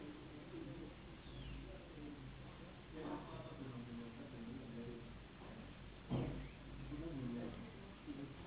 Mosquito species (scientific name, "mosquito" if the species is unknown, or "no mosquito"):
Anopheles gambiae s.s.